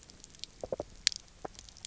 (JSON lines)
{"label": "biophony", "recorder": "SoundTrap 300"}